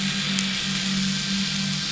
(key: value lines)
label: anthrophony, boat engine
recorder: SoundTrap 500